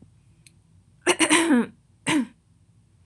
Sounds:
Throat clearing